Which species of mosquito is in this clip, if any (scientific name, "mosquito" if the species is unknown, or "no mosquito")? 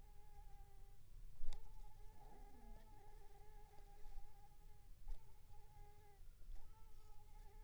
Anopheles squamosus